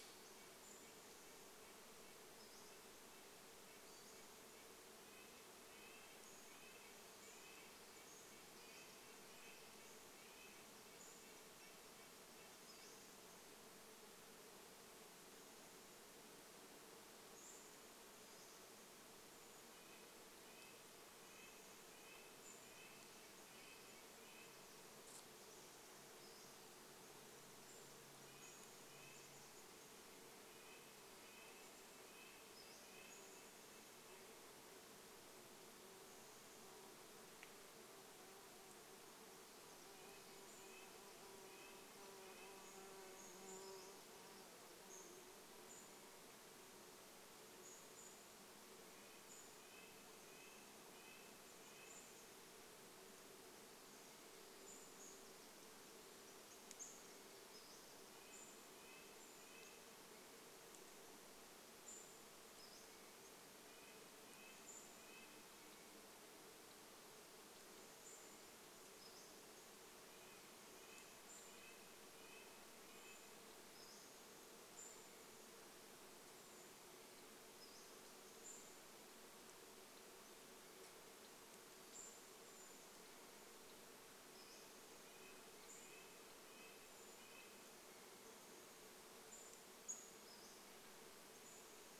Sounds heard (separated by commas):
Golden-crowned Kinglet call, insect buzz, unidentified bird chip note, Pacific-slope Flycatcher call, Red-breasted Nuthatch song